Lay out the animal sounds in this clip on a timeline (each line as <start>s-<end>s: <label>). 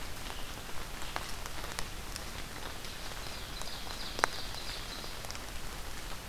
2.6s-5.2s: Ovenbird (Seiurus aurocapilla)